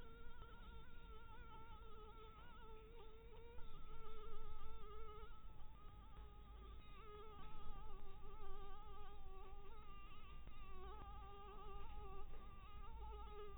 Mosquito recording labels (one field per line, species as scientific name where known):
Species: Anopheles dirus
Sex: female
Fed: blood-fed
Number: one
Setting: cup